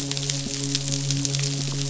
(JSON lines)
{"label": "biophony, midshipman", "recorder": "SoundTrap 500"}